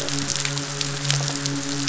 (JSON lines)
{"label": "biophony, midshipman", "recorder": "SoundTrap 500"}